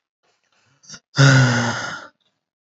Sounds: Sigh